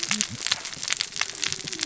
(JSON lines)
{"label": "biophony, cascading saw", "recorder": "SoundTrap 600 or HydroMoth"}